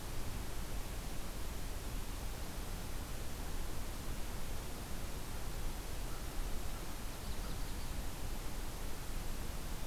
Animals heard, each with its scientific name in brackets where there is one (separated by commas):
Yellow-rumped Warbler (Setophaga coronata), American Crow (Corvus brachyrhynchos)